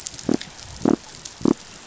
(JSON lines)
{"label": "biophony", "recorder": "SoundTrap 500"}